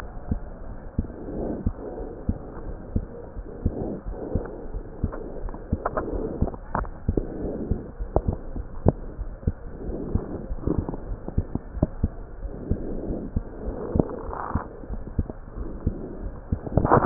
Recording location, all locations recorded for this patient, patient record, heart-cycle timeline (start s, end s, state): aortic valve (AV)
aortic valve (AV)+pulmonary valve (PV)+tricuspid valve (TV)+mitral valve (MV)
#Age: Child
#Sex: Male
#Height: 115.0 cm
#Weight: 23.5 kg
#Pregnancy status: False
#Murmur: Absent
#Murmur locations: nan
#Most audible location: nan
#Systolic murmur timing: nan
#Systolic murmur shape: nan
#Systolic murmur grading: nan
#Systolic murmur pitch: nan
#Systolic murmur quality: nan
#Diastolic murmur timing: nan
#Diastolic murmur shape: nan
#Diastolic murmur grading: nan
#Diastolic murmur pitch: nan
#Diastolic murmur quality: nan
#Outcome: Abnormal
#Campaign: 2015 screening campaign
0.00	0.44	unannotated
0.44	0.65	diastole
0.65	0.76	S1
0.76	0.94	systole
0.94	1.08	S2
1.08	1.34	diastole
1.34	1.50	S1
1.50	1.64	systole
1.64	1.74	S2
1.74	2.00	diastole
2.00	2.08	S1
2.08	2.24	systole
2.24	2.36	S2
2.36	2.68	diastole
2.68	2.78	S1
2.78	2.94	systole
2.94	3.06	S2
3.06	3.38	diastole
3.38	3.46	S1
3.46	3.64	systole
3.64	3.76	S2
3.76	4.06	diastole
4.06	4.18	S1
4.18	4.32	systole
4.32	4.46	S2
4.46	4.74	diastole
4.74	4.84	S1
4.84	5.00	systole
5.00	5.14	S2
5.14	5.42	diastole
5.42	5.54	S1
5.54	5.68	systole
5.68	5.80	S2
5.80	6.12	diastole
6.12	6.26	S1
6.26	6.40	systole
6.40	6.52	S2
6.52	6.76	diastole
6.76	6.92	S1
6.92	7.04	systole
7.04	7.18	S2
7.18	7.41	diastole
7.41	7.53	S1
7.53	7.68	systole
7.68	7.80	S2
7.80	7.97	diastole
7.97	8.08	S1
8.08	8.24	systole
8.24	8.36	S2
8.36	8.51	diastole
8.51	8.66	S1
8.66	8.84	systole
8.84	8.96	S2
8.96	9.20	diastole
9.20	9.34	S1
9.34	9.46	systole
9.46	9.56	S2
9.56	9.86	diastole
9.86	10.00	S1
10.00	10.12	systole
10.12	10.26	S2
10.26	10.50	diastole
10.50	10.60	S1
10.60	10.74	systole
10.74	10.84	S2
10.84	11.06	diastole
11.06	11.18	S1
11.18	11.34	systole
11.34	11.48	S2
11.48	11.76	diastole
11.76	11.90	S1
11.90	12.02	systole
12.02	12.12	S2
12.12	12.40	diastole
12.40	12.52	S1
12.52	12.68	systole
12.68	12.82	S2
12.82	13.08	diastole
13.08	13.20	S1
13.20	13.32	systole
13.32	13.42	S2
13.42	13.66	diastole
13.66	13.76	S1
13.76	13.90	systole
13.90	14.04	S2
14.04	14.28	diastole
14.28	14.38	S1
14.38	14.54	systole
14.54	14.64	S2
14.64	14.92	diastole
14.92	15.04	S1
15.04	15.16	systole
15.16	15.28	S2
15.28	15.58	diastole
15.58	15.68	S1
15.68	15.82	systole
15.82	15.96	S2
15.96	16.20	diastole
16.20	16.32	S1
16.32	16.48	systole
16.48	16.62	S2
16.62	17.06	unannotated